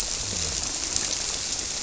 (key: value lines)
label: biophony
recorder: SoundTrap 300